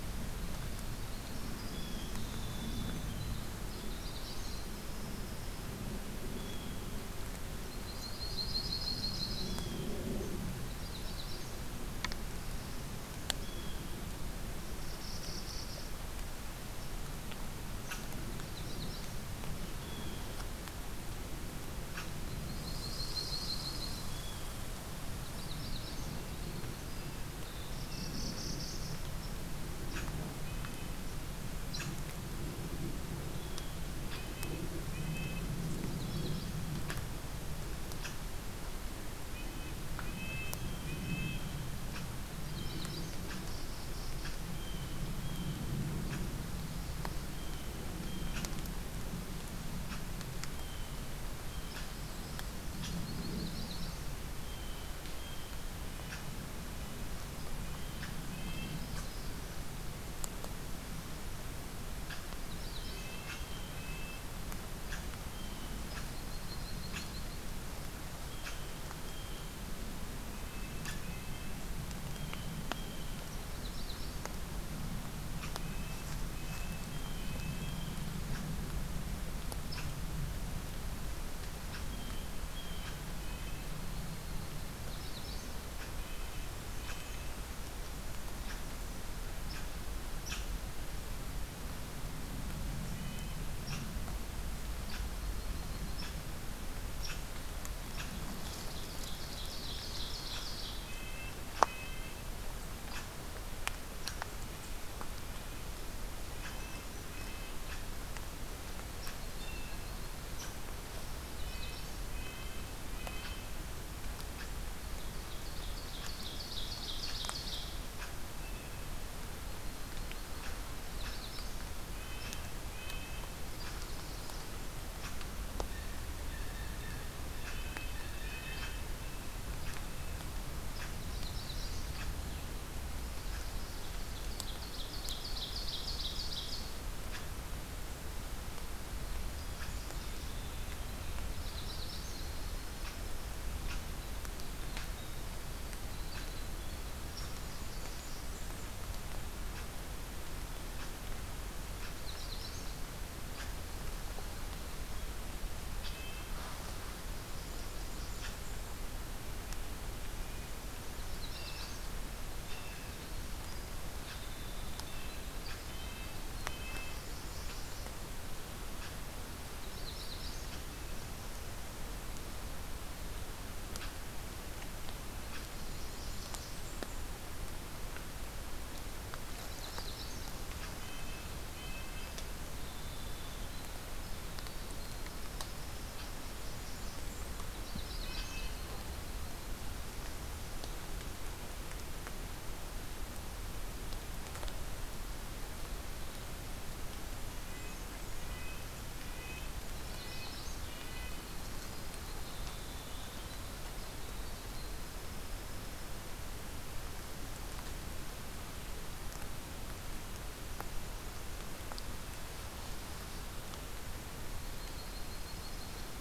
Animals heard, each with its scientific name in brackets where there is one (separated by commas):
Red Squirrel (Tamiasciurus hudsonicus), Blue Jay (Cyanocitta cristata), Ovenbird (Seiurus aurocapilla), Black-throated Blue Warbler (Setophaga caerulescens), Blackburnian Warbler (Setophaga fusca), Yellow-rumped Warbler (Setophaga coronata), Red-breasted Nuthatch (Sitta canadensis), unidentified call, Magnolia Warbler (Setophaga magnolia), Winter Wren (Troglodytes hiemalis)